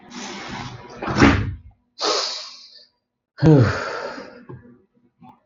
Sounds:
Sigh